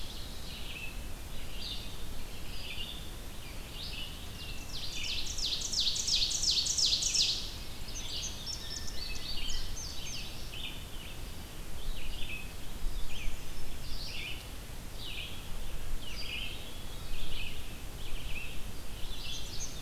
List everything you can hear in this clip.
Red-eyed Vireo, Blue Jay, Ovenbird, Indigo Bunting, Hermit Thrush